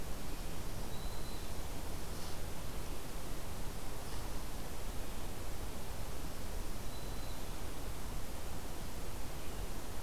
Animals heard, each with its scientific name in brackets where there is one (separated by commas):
Black-throated Green Warbler (Setophaga virens)